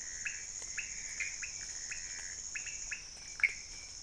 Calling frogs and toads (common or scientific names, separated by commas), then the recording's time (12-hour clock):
pointedbelly frog, Pithecopus azureus
1:00am